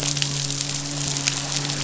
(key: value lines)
label: biophony, midshipman
recorder: SoundTrap 500